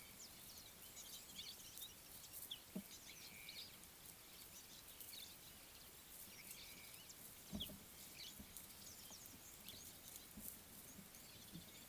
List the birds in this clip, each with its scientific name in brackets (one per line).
Scarlet-chested Sunbird (Chalcomitra senegalensis)
Slate-colored Boubou (Laniarius funebris)